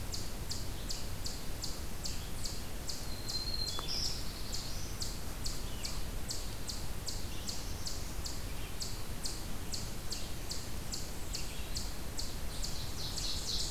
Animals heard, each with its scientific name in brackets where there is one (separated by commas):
Black-throated Blue Warbler (Setophaga caerulescens), Eastern Chipmunk (Tamias striatus), Black-throated Green Warbler (Setophaga virens), Ovenbird (Seiurus aurocapilla)